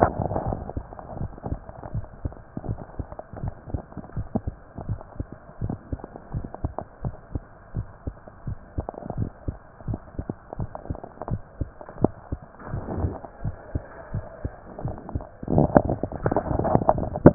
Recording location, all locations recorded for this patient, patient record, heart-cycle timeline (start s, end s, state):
mitral valve (MV)
aortic valve (AV)+pulmonary valve (PV)+tricuspid valve (TV)+mitral valve (MV)
#Age: Child
#Sex: Female
#Height: 139.0 cm
#Weight: 28.3 kg
#Pregnancy status: False
#Murmur: Absent
#Murmur locations: nan
#Most audible location: nan
#Systolic murmur timing: nan
#Systolic murmur shape: nan
#Systolic murmur grading: nan
#Systolic murmur pitch: nan
#Systolic murmur quality: nan
#Diastolic murmur timing: nan
#Diastolic murmur shape: nan
#Diastolic murmur grading: nan
#Diastolic murmur pitch: nan
#Diastolic murmur quality: nan
#Outcome: Abnormal
#Campaign: 2015 screening campaign
0.00	2.64	unannotated
2.64	2.78	S1
2.78	2.96	systole
2.96	3.06	S2
3.06	3.40	diastole
3.40	3.54	S1
3.54	3.72	systole
3.72	3.82	S2
3.82	4.16	diastole
4.16	4.28	S1
4.28	4.44	systole
4.44	4.54	S2
4.54	4.84	diastole
4.84	5.00	S1
5.00	5.16	systole
5.16	5.28	S2
5.28	5.60	diastole
5.60	5.78	S1
5.78	5.90	systole
5.90	6.00	S2
6.00	6.31	diastole
6.31	6.46	S1
6.46	6.62	systole
6.62	6.74	S2
6.74	7.02	diastole
7.02	7.16	S1
7.16	7.31	systole
7.31	7.44	S2
7.44	7.72	diastole
7.72	7.88	S1
7.88	8.03	systole
8.03	8.16	S2
8.16	8.43	diastole
8.43	8.58	S1
8.58	8.74	systole
8.74	8.88	S2
8.88	9.14	diastole
9.14	9.28	S1
9.28	9.44	systole
9.44	9.58	S2
9.58	9.85	diastole
9.85	10.00	S1
10.00	10.16	systole
10.16	10.28	S2
10.28	10.56	diastole
10.56	10.70	S1
10.70	10.87	systole
10.87	10.98	S2
10.98	11.28	diastole
11.28	11.42	S1
11.42	11.56	systole
11.56	11.70	S2
11.70	17.34	unannotated